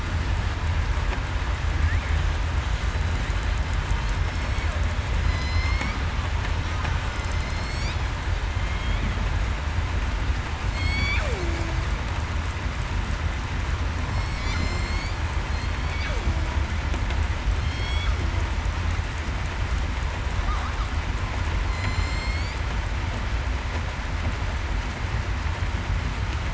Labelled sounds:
4.2	4.6	killer whale, southern resident, 5.3 to 5.5 kHz
5.2	5.9	killer whale, southern resident, 4.0 to 5.7 kHz
7.0	7.9	killer whale, southern resident, 5.1 to 5.9 kHz
8.7	9.0	killer whale, southern resident, 2.1 to 2.4 kHz
10.7	11.5	killer whale, southern resident, 0.30 to 8.0 kHz
14.1	14.5	killer whale, southern resident, 4.3 to 4.7 kHz
17.6	18.1	killer whale, southern resident, 4.2 to 8.0 kHz
21.7	22.6	killer whale, southern resident, 2.0 to 7.7 kHz

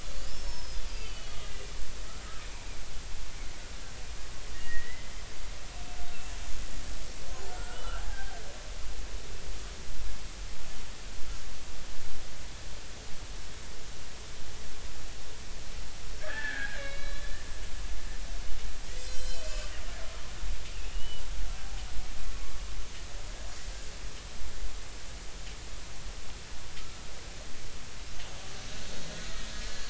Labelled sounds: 0.2	1.5	killer whale, Bigg's (transient), 2.9 to 5.4 kHz
4.5	5.1	killer whale, Bigg's (transient), 1.7 to 2.1 kHz
7.5	8.3	killer whale, Bigg's (transient), 1.2 to 7.7 kHz
16.2	17.4	killer whale, Bigg's (transient), 1.4 to 4.1 kHz
18.9	19.7	killer whale, Bigg's (transient), 2.5 to 7.8 kHz
20.9	21.2	killer whale, Bigg's (transient), 2.8 to 3.0 kHz
29.6	29.8	killer whale, Bigg's (transient), 1.6 to 1.8 kHz

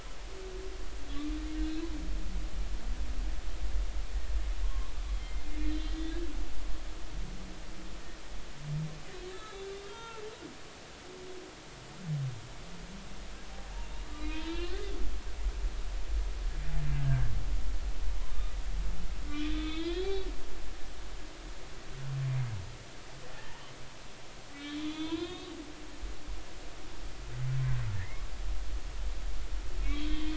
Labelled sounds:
1.1	1.4	humpback whale, 1.1 to 1.2 kHz
4.6	4.9	humpback whale, 0.93 to 1.2 kHz
5.2	6.2	humpback whale, 1.9 to 4.2 kHz
9.3	10.2	humpback whale, 0.83 to 4.0 kHz
13.8	14.8	humpback whale, 0.90 to 3.7 kHz
19.4	20.3	humpback whale, 1.2 to 4.8 kHz
23.3	23.6	humpback whale, 1.7 to 1.9 kHz
24.6	25.5	humpback whale, 0.90 to 4.0 kHz
27.9	28.2	humpback whale, 1.6 to 2.2 kHz
29.9	30.3	humpback whale, 2.0 to 3.4 kHz

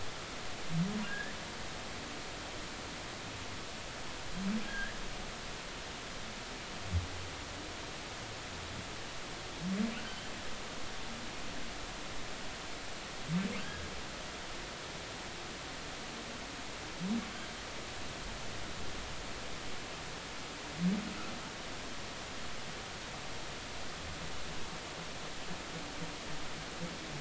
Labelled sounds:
1.0	1.3	humpback whale, 1.5 to 2.0 kHz
4.6	5.0	humpback whale, 1.5 to 1.9 kHz
10.0	10.3	humpback whale, 3.0 to 3.2 kHz

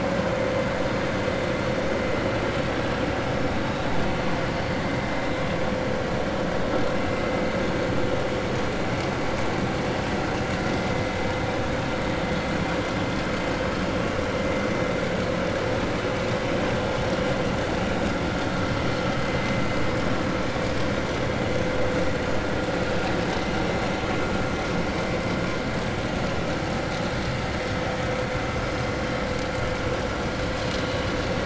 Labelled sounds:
25.3	25.5	vessel noise, 5.3 to 5.5 kHz
30.0	30.3	vessel noise, 5.8 to 5.9 kHz

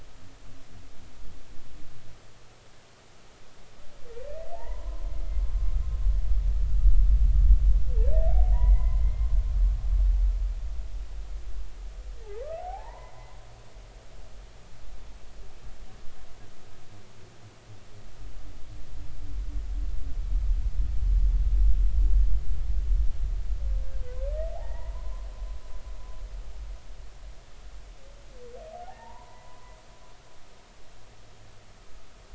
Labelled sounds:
4.5	5.4	humpback whale, 0.80 to 2.2 kHz
8.2	9.3	humpback whale, 0.80 to 2.3 kHz
12.6	13.4	humpback whale, 0.80 to 1.1 kHz
24.5	25.3	humpback whale, 0.80 to 2.0 kHz
28.8	29.8	humpback whale, 0.80 to 1.1 kHz

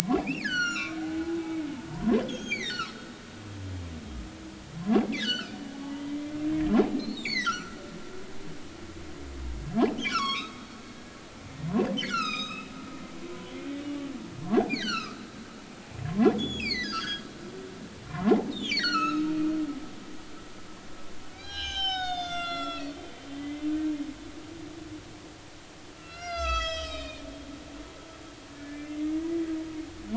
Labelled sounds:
0.2	3.0	humpback whale, 0.80 to 7.7 kHz
5.0	7.8	humpback whale, 0.80 to 6.8 kHz
9.6	10.6	humpback whale, 0.99 to 8.0 kHz
10.9	12.7	humpback whale, 1.1 to 7.9 kHz
13.2	14.1	humpback whale, 0.96 to 3.6 kHz
14.7	15.2	humpback whale, 1.1 to 6.4 kHz
16.1	17.2	humpback whale, 0.96 to 7.1 kHz
18.5	19.6	humpback whale, 1.2 to 6.0 kHz
21.3	22.9	humpback whale, 0.80 to 7.7 kHz
23.3	24.0	humpback whale, 1.5 to 2.1 kHz
25.9	27.3	humpback whale, 1.2 to 7.8 kHz
28.5	28.9	humpback whale, 1.7 to 1.8 kHz

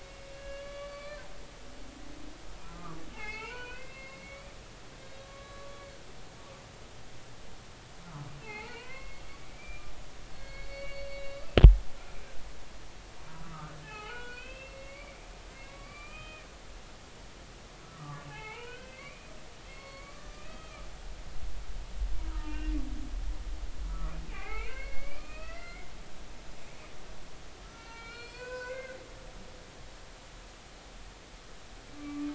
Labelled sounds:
0.0	1.2	humpback whale, 1.1 to 5.1 kHz
2.6	5.9	humpback whale, 0.80 to 4.8 kHz
8.4	11.4	humpback whale, 0.80 to 4.5 kHz
13.3	16.4	humpback whale, 0.80 to 4.8 kHz
17.8	19.3	humpback whale, 0.80 to 3.2 kHz
19.6	20.8	humpback whale, 1.1 to 6.1 kHz
22.3	22.7	humpback whale, 0.86 to 2.8 kHz
24.3	25.9	humpback whale, 0.80 to 4.9 kHz
27.6	29.0	humpback whale, 0.96 to 6.0 kHz
32.0	32.3	humpback whale, 1.1 to 1.2 kHz

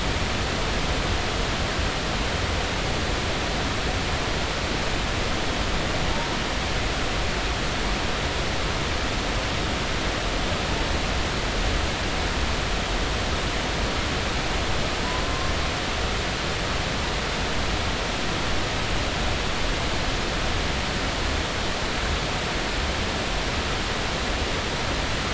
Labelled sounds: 15.3	15.5	humpback whale, 0.99 to 1.2 kHz

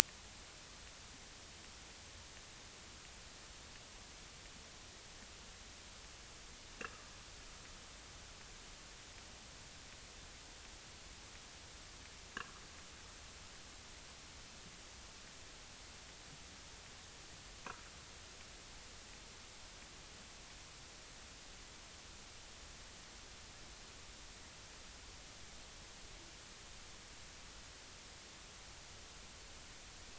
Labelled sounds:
6.8	7.1	sperm whale, 1.1 to 1.8 kHz
12.4	12.6	sperm whale, 0.99 to 1.4 kHz

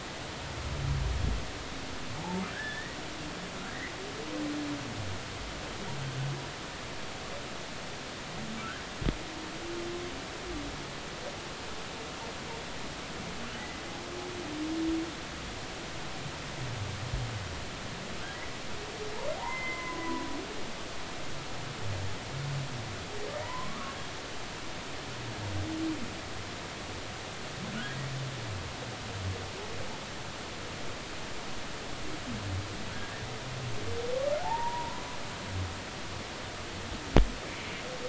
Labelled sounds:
2.2	3.0	humpback whale, 0.80 to 2.0 kHz
13.6	13.8	humpback whale, 1.8 to 2.0 kHz
19.4	20.3	humpback whale, 0.80 to 2.2 kHz
23.3	24.0	humpback whale, 0.90 to 2.0 kHz
32.9	33.2	humpback whale, 1.6 to 1.9 kHz
34.4	35.0	humpback whale, 0.80 to 1.1 kHz

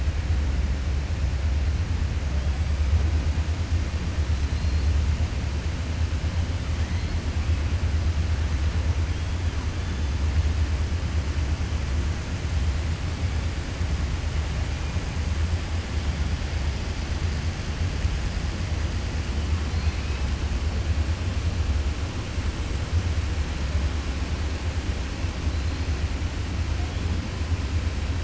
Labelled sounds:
4.4	4.9	killer whale, 3.5 to 4.8 kHz

